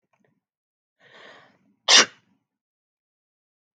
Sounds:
Sneeze